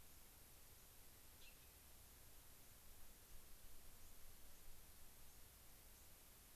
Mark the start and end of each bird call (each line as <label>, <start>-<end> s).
White-crowned Sparrow (Zonotrichia leucophrys), 4.5-4.7 s
White-crowned Sparrow (Zonotrichia leucophrys), 5.2-5.4 s
White-crowned Sparrow (Zonotrichia leucophrys), 5.9-6.1 s